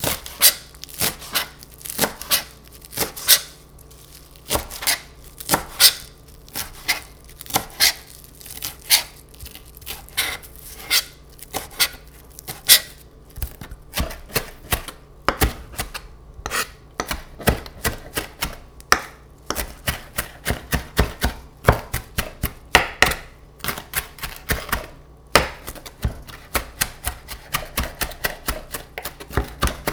Is a dog panting?
no